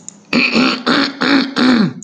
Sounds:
Throat clearing